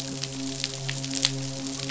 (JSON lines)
{"label": "biophony, midshipman", "recorder": "SoundTrap 500"}